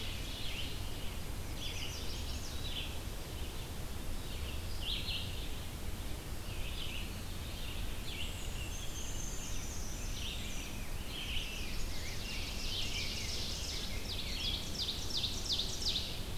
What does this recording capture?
Red-eyed Vireo, Chestnut-sided Warbler, Black-and-white Warbler, Rose-breasted Grosbeak, Ovenbird